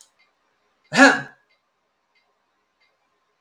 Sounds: Cough